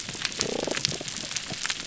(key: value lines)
label: biophony, damselfish
recorder: SoundTrap 300